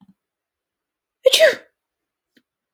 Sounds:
Sneeze